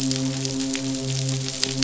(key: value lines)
label: biophony, midshipman
recorder: SoundTrap 500